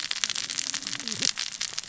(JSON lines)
{"label": "biophony, cascading saw", "recorder": "SoundTrap 600 or HydroMoth"}